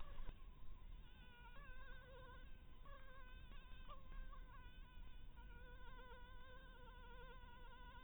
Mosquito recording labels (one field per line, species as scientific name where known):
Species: Anopheles harrisoni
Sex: female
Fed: blood-fed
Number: one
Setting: cup